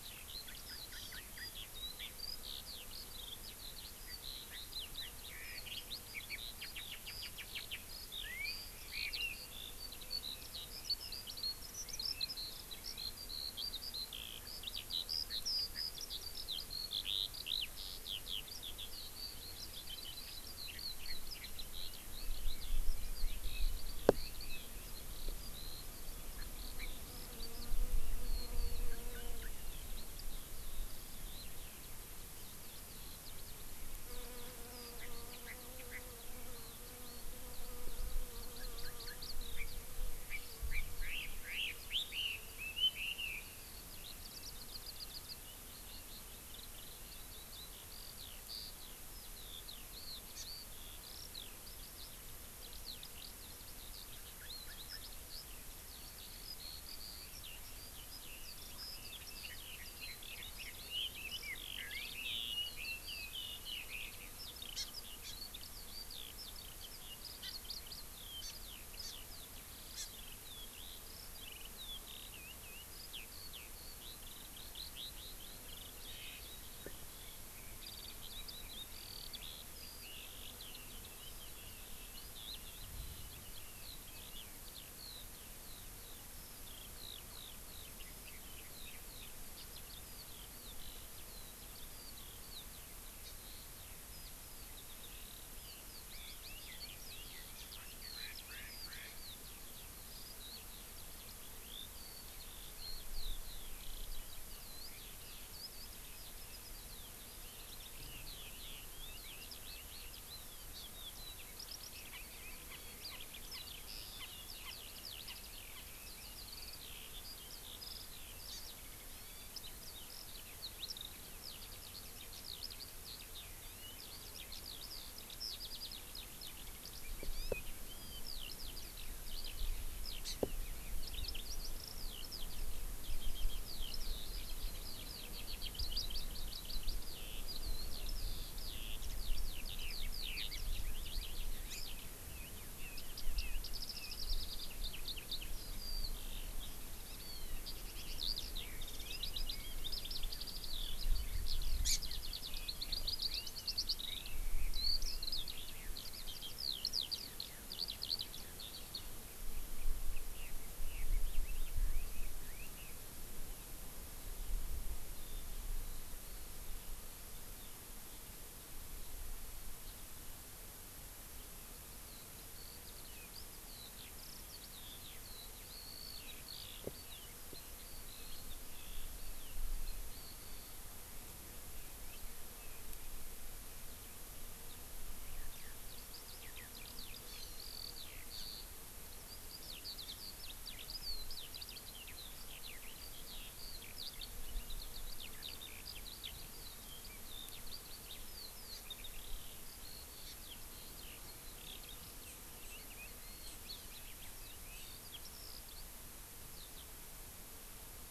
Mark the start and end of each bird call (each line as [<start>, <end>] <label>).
[0.00, 159.09] Eurasian Skylark (Alauda arvensis)
[0.49, 1.49] Chinese Hwamei (Garrulax canorus)
[0.89, 1.19] Hawaii Amakihi (Chlorodrepanis virens)
[4.09, 5.89] Chinese Hwamei (Garrulax canorus)
[6.19, 7.89] Chinese Hwamei (Garrulax canorus)
[26.29, 26.89] Chinese Hwamei (Garrulax canorus)
[28.89, 29.49] Chinese Hwamei (Garrulax canorus)
[34.99, 35.09] Chinese Hwamei (Garrulax canorus)
[35.39, 35.59] Chinese Hwamei (Garrulax canorus)
[35.89, 35.99] Chinese Hwamei (Garrulax canorus)
[39.49, 39.69] Chinese Hwamei (Garrulax canorus)
[40.29, 43.39] Chinese Hwamei (Garrulax canorus)
[50.39, 50.49] Hawaii Amakihi (Chlorodrepanis virens)
[59.19, 64.19] Chinese Hwamei (Garrulax canorus)
[64.69, 64.89] Hawaii Amakihi (Chlorodrepanis virens)
[65.19, 65.29] Hawaii Amakihi (Chlorodrepanis virens)
[67.39, 67.49] Hawaii Amakihi (Chlorodrepanis virens)
[68.39, 68.49] Hawaii Amakihi (Chlorodrepanis virens)
[68.99, 69.09] Hawaii Amakihi (Chlorodrepanis virens)
[69.99, 70.09] Hawaii Amakihi (Chlorodrepanis virens)
[87.89, 89.39] Chinese Hwamei (Garrulax canorus)
[93.19, 93.39] Hawaii Amakihi (Chlorodrepanis virens)
[96.39, 99.39] Chinese Hwamei (Garrulax canorus)
[118.49, 118.59] Hawaii Amakihi (Chlorodrepanis virens)
[130.19, 130.39] Hawaii Amakihi (Chlorodrepanis virens)
[151.79, 151.99] Hawaii Amakihi (Chlorodrepanis virens)
[153.29, 155.69] Red-billed Leiothrix (Leiothrix lutea)
[171.99, 180.79] Eurasian Skylark (Alauda arvensis)
[185.19, 205.79] Eurasian Skylark (Alauda arvensis)
[187.19, 187.59] Hawaii Amakihi (Chlorodrepanis virens)
[198.69, 198.79] Hawaii Amakihi (Chlorodrepanis virens)
[200.19, 200.39] Hawaii Amakihi (Chlorodrepanis virens)
[206.49, 206.79] Eurasian Skylark (Alauda arvensis)